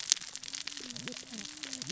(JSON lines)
{"label": "biophony, cascading saw", "recorder": "SoundTrap 600 or HydroMoth"}